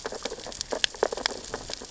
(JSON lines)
{"label": "biophony, sea urchins (Echinidae)", "recorder": "SoundTrap 600 or HydroMoth"}